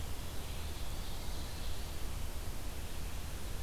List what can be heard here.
Ovenbird